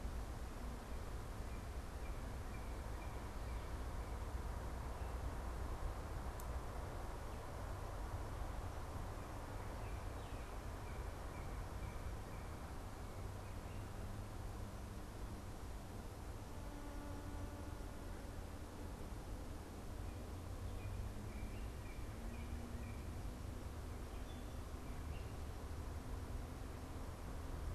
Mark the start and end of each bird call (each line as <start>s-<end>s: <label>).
0.6s-4.5s: Northern Cardinal (Cardinalis cardinalis)
9.6s-12.8s: Northern Cardinal (Cardinalis cardinalis)
20.6s-23.3s: Northern Cardinal (Cardinalis cardinalis)